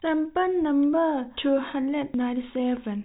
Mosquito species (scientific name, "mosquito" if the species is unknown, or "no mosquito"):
no mosquito